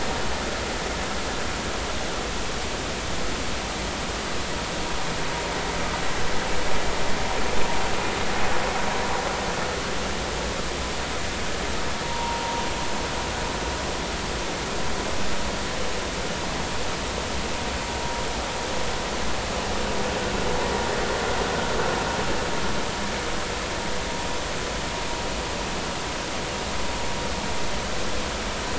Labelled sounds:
12.0	12.4	vessel noise, 0.83 to 1.1 kHz

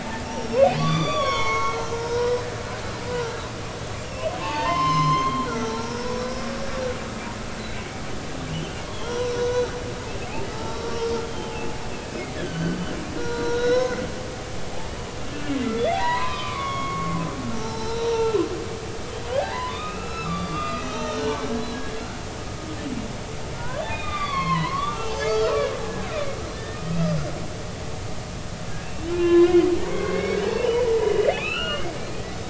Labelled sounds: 0.3	2.4	humpback whale, 0.86 to 6.8 kHz
3.2	6.8	humpback whale, 0.83 to 6.4 kHz
7.6	7.8	humpback whale, 3.8 to 4.2 kHz
8.5	9.7	humpback whale, 0.83 to 6.4 kHz
10.5	12.8	humpback whale, 0.80 to 5.6 kHz
13.2	14.0	humpback whale, 0.90 to 5.6 kHz
15.8	17.2	humpback whale, 0.90 to 4.2 kHz
17.5	18.4	humpback whale, 0.83 to 6.0 kHz
19.3	22.1	humpback whale, 0.80 to 4.1 kHz
23.5	25.6	humpback whale, 0.90 to 5.5 kHz
25.9	27.1	humpback whale, 1.3 to 3.4 kHz
28.8	32.2	humpback whale, 0.96 to 4.4 kHz

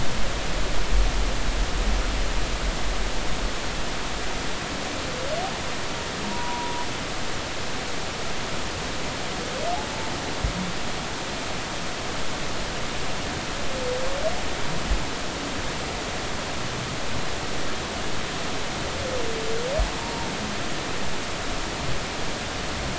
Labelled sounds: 6.2	6.9	humpback whale, 0.90 to 1.0 kHz
20.0	20.3	humpback whale, 0.90 to 0.99 kHz

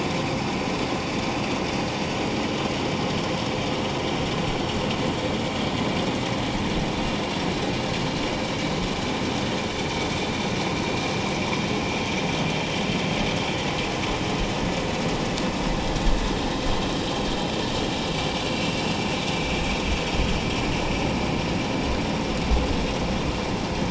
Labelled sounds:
18.4	18.8	vessel noise, 2.7 to 2.8 kHz

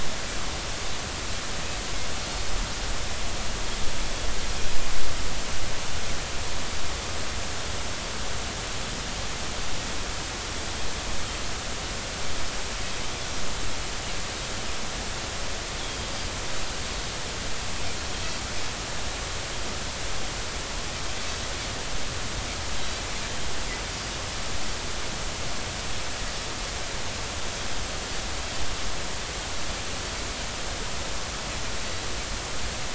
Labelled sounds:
15.8	16.1	Pacific white-sided dolphin, 3.2 to 3.4 kHz

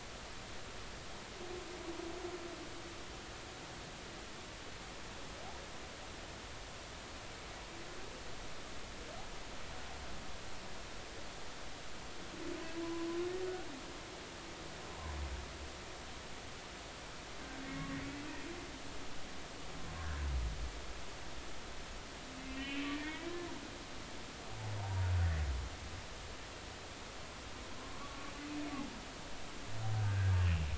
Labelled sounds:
12.8	13.1	humpback whale, 0.96 to 1.1 kHz
18.0	18.3	humpback whale, 2.5 to 2.8 kHz
22.4	23.3	humpback whale, 1.7 to 3.2 kHz
25.8	26.1	humpback whale, 0.80 to 0.99 kHz
28.8	30.4	humpback whale, 0.99 to 1.7 kHz

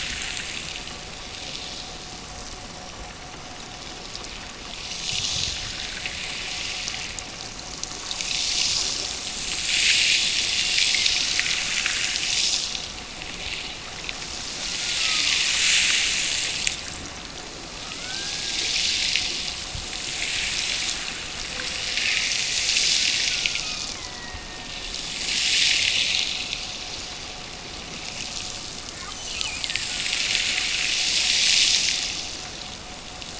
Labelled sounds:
14.6	15.5	killer whale, Bigg's (transient), Gulf of Alaska transient, 0.94 to 1.5 kHz
17.9	19.0	killer whale, Bigg's (transient), Gulf of Alaska transient, 1.1 to 2.4 kHz
22.9	25.1	killer whale, Bigg's (transient), Gulf of Alaska transient, 0.73 to 2.1 kHz
29.1	30.2	killer whale, Bigg's (transient), Gulf of Alaska transient, 1.2 to 3.3 kHz

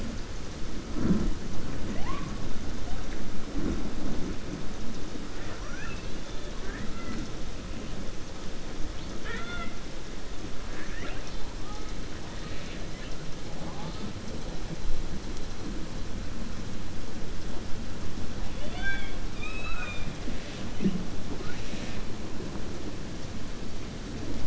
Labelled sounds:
5.3	6.5	killer whale, 0.68 to 4.6 kHz
19.3	20.1	killer whale, 0.95 to 4.0 kHz

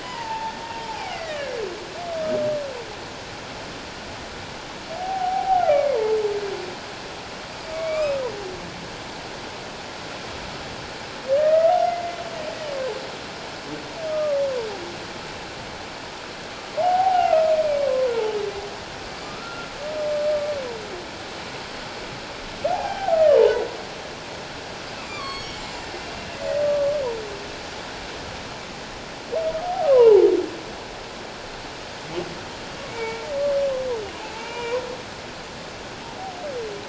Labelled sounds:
0.0	1.5	humpback whale, 0.78 to 2.5 kHz
5.0	6.2	humpback whale, 0.78 to 2.5 kHz
7.7	8.2	humpback whale, 1.1 to 2.6 kHz
11.3	12.2	humpback whale, 1.2 to 2.1 kHz
14.1	14.4	humpback whale, 1.1 to 1.3 kHz
16.8	17.5	humpback whale, 0.78 to 1.5 kHz
19.2	19.7	humpback whale, 1.2 to 1.4 kHz
22.7	23.7	humpback whale, 0.78 to 3.2 kHz
25.1	26.3	humpback whale, 1.0 to 7.8 kHz
26.6	26.9	humpback whale, 1.1 to 1.2 kHz
29.6	30.3	humpback whale, 0.78 to 1.4 kHz
32.9	33.2	humpback whale, 2.2 to 2.4 kHz
34.2	34.8	humpback whale, 0.78 to 2.9 kHz

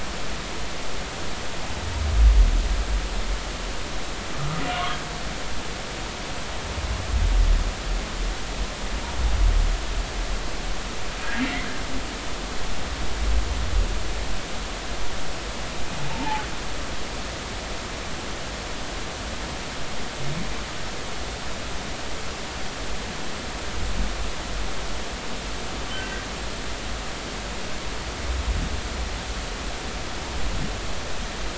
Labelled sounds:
16.1	16.4	humpback whale, 0.80 to 0.96 kHz

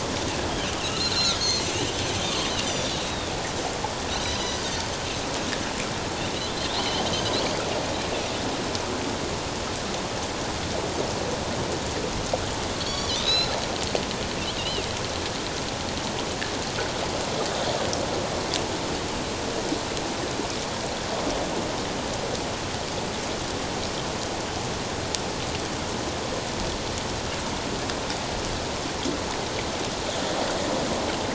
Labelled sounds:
0.5	1.6	Pacific white-sided dolphin, 2.6 to 4.5 kHz
2.6	3.3	Pacific white-sided dolphin, 3.3 to 7.3 kHz
4.2	4.7	Pacific white-sided dolphin, 3.7 to 5.1 kHz
6.7	7.6	Pacific white-sided dolphin, 2.9 to 4.6 kHz
12.8	13.6	Pacific white-sided dolphin, 2.6 to 4.6 kHz
14.6	14.9	Pacific white-sided dolphin, 2.4 to 3.2 kHz

